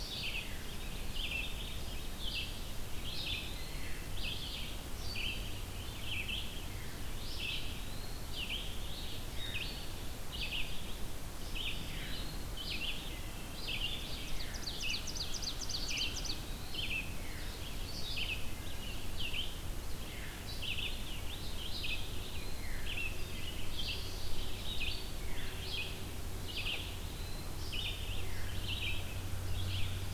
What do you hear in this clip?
Red-eyed Vireo, Eastern Wood-Pewee, Ovenbird